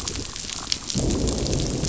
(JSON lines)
{"label": "biophony, growl", "recorder": "SoundTrap 500"}